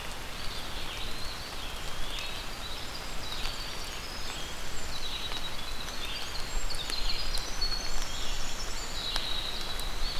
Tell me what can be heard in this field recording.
Red-eyed Vireo, Eastern Wood-Pewee, Winter Wren